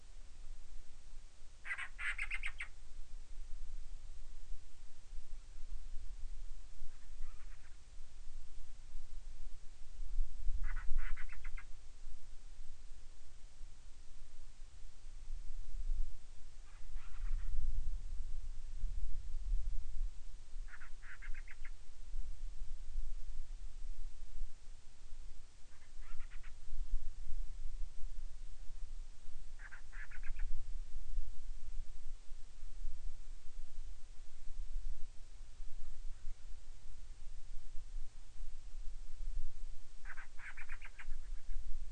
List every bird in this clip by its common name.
Band-rumped Storm-Petrel